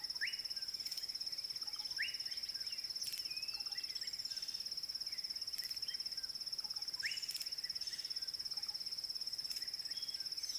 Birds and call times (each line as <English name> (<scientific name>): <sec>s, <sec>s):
Slate-colored Boubou (Laniarius funebris): 0.3s
White Helmetshrike (Prionops plumatus): 7.4s